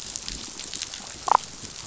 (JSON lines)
{"label": "biophony, damselfish", "recorder": "SoundTrap 500"}